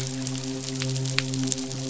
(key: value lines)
label: biophony, midshipman
recorder: SoundTrap 500